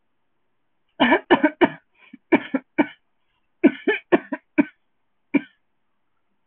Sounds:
Cough